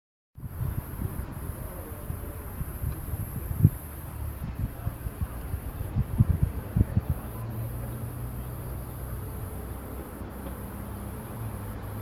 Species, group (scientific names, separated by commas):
Cicadatra atra, Cicadidae